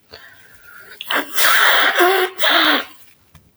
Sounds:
Sneeze